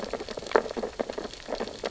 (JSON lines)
{"label": "biophony, sea urchins (Echinidae)", "recorder": "SoundTrap 600 or HydroMoth"}